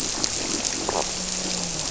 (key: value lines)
label: biophony, grouper
recorder: SoundTrap 300